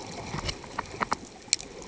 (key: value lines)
label: ambient
recorder: HydroMoth